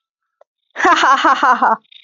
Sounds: Laughter